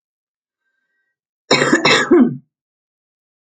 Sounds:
Cough